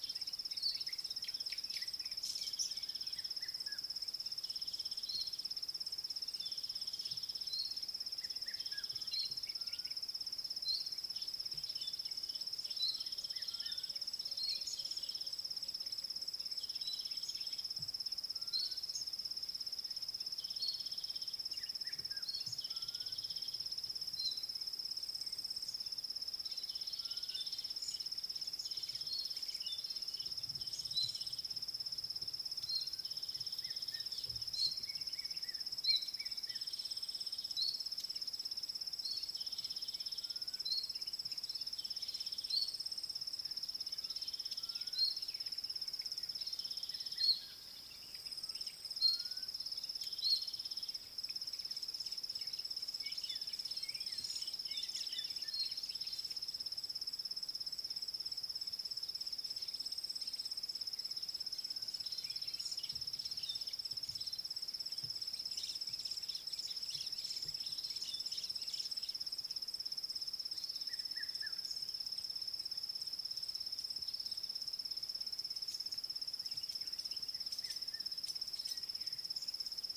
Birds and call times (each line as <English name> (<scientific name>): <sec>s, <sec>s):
Gray-backed Camaroptera (Camaroptera brevicaudata): 1.5s
Vitelline Masked-Weaver (Ploceus vitellinus): 19.0s
Fork-tailed Drongo (Dicrurus adsimilis): 29.7s, 54.8s
Red-chested Cuckoo (Cuculus solitarius): 36.2s, 71.3s
White-browed Sparrow-Weaver (Plocepasser mahali): 67.1s